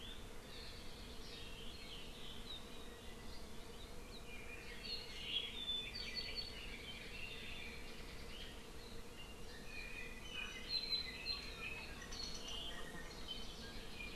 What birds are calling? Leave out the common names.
Loxops mana, Himatione sanguinea